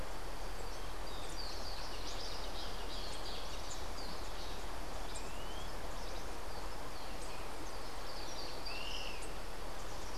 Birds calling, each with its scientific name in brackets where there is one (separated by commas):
Yellow-bellied Elaenia (Elaenia flavogaster), Social Flycatcher (Myiozetetes similis)